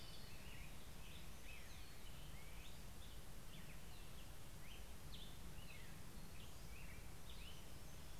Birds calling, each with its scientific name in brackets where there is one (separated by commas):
Hermit Warbler (Setophaga occidentalis), American Robin (Turdus migratorius), Orange-crowned Warbler (Leiothlypis celata)